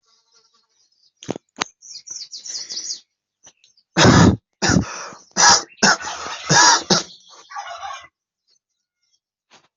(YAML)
expert_labels:
- quality: poor
  cough_type: unknown
  dyspnea: false
  wheezing: false
  stridor: false
  choking: false
  congestion: false
  nothing: true
  diagnosis: healthy cough
  severity: pseudocough/healthy cough
gender: female
respiratory_condition: true
fever_muscle_pain: false
status: COVID-19